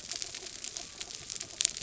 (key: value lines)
label: biophony
recorder: SoundTrap 300